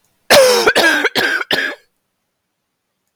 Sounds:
Cough